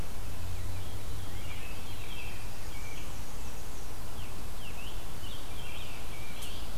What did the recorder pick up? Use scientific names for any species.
Catharus fuscescens, Turdus migratorius, Mniotilta varia, Piranga olivacea, Contopus virens